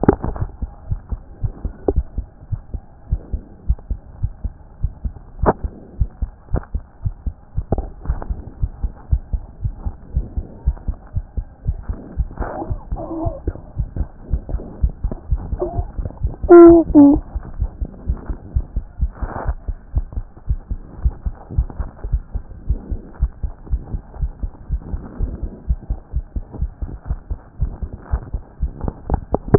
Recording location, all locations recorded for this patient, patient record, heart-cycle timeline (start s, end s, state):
aortic valve (AV)
aortic valve (AV)+pulmonary valve (PV)+tricuspid valve (TV)+mitral valve (MV)
#Age: Child
#Sex: Male
#Height: 111.0 cm
#Weight: 21.3 kg
#Pregnancy status: False
#Murmur: Absent
#Murmur locations: nan
#Most audible location: nan
#Systolic murmur timing: nan
#Systolic murmur shape: nan
#Systolic murmur grading: nan
#Systolic murmur pitch: nan
#Systolic murmur quality: nan
#Diastolic murmur timing: nan
#Diastolic murmur shape: nan
#Diastolic murmur grading: nan
#Diastolic murmur pitch: nan
#Diastolic murmur quality: nan
#Outcome: Normal
#Campaign: 2014 screening campaign
0.00	0.90	unannotated
0.90	1.00	S1
1.00	1.12	systole
1.12	1.22	S2
1.22	1.42	diastole
1.42	1.52	S1
1.52	1.64	systole
1.64	1.72	S2
1.72	1.92	diastole
1.92	2.04	S1
2.04	2.16	systole
2.16	2.26	S2
2.26	2.50	diastole
2.50	2.60	S1
2.60	2.74	systole
2.74	2.84	S2
2.84	3.08	diastole
3.08	3.20	S1
3.20	3.32	systole
3.32	3.42	S2
3.42	3.66	diastole
3.66	3.78	S1
3.78	3.90	systole
3.90	4.00	S2
4.00	4.20	diastole
4.20	4.32	S1
4.32	4.44	systole
4.44	4.54	S2
4.54	4.80	diastole
4.80	4.92	S1
4.92	5.04	systole
5.04	5.14	S2
5.14	5.42	diastole
5.42	5.54	S1
5.54	5.64	systole
5.64	5.74	S2
5.74	5.98	diastole
5.98	6.10	S1
6.10	6.20	systole
6.20	6.30	S2
6.30	6.52	diastole
6.52	6.62	S1
6.62	6.74	systole
6.74	6.84	S2
6.84	7.04	diastole
7.04	7.14	S1
7.14	7.26	systole
7.26	7.36	S2
7.36	7.56	diastole
7.56	7.66	S1
7.66	7.76	systole
7.76	7.86	S2
7.86	8.08	diastole
8.08	8.18	S1
8.18	8.30	systole
8.30	8.40	S2
8.40	8.60	diastole
8.60	8.72	S1
8.72	8.82	systole
8.82	8.92	S2
8.92	9.10	diastole
9.10	9.22	S1
9.22	9.32	systole
9.32	9.42	S2
9.42	9.62	diastole
9.62	9.74	S1
9.74	9.86	systole
9.86	9.94	S2
9.94	10.14	diastole
10.14	10.26	S1
10.26	10.36	systole
10.36	10.46	S2
10.46	10.64	diastole
10.64	10.76	S1
10.76	10.88	systole
10.88	10.96	S2
10.96	11.14	diastole
11.14	11.24	S1
11.24	11.36	systole
11.36	11.46	S2
11.46	11.66	diastole
11.66	11.78	S1
11.78	11.88	systole
11.88	11.98	S2
11.98	12.16	diastole
12.16	12.28	S1
12.28	12.40	systole
12.40	12.50	S2
12.50	12.68	diastole
12.68	12.80	S1
12.80	12.92	systole
12.92	13.00	S2
13.00	13.20	diastole
13.20	13.34	S1
13.34	13.46	systole
13.46	13.56	S2
13.56	13.76	diastole
13.76	13.88	S1
13.88	13.98	systole
13.98	14.08	S2
14.08	14.30	diastole
14.30	14.42	S1
14.42	14.52	systole
14.52	14.62	S2
14.62	14.82	diastole
14.82	14.94	S1
14.94	15.04	systole
15.04	15.14	S2
15.14	15.30	diastole
15.30	15.42	S1
15.42	15.52	systole
15.52	15.62	S2
15.62	15.82	diastole
15.82	15.88	S1
15.88	15.98	systole
15.98	16.06	S2
16.06	16.24	diastole
16.24	29.58	unannotated